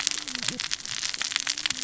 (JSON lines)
{"label": "biophony, cascading saw", "recorder": "SoundTrap 600 or HydroMoth"}